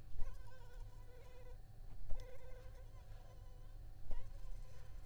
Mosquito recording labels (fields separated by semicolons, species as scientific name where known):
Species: Anopheles arabiensis; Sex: female; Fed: unfed; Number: one; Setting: cup